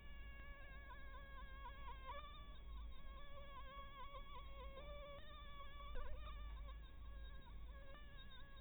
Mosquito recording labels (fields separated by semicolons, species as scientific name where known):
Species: Anopheles minimus; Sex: female; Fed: blood-fed; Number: one; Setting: cup